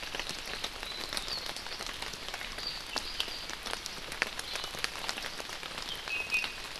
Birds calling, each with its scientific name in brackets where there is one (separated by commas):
Iiwi (Drepanis coccinea)